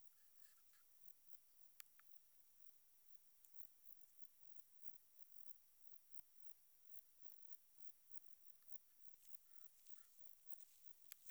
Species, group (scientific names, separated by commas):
Metrioptera saussuriana, Orthoptera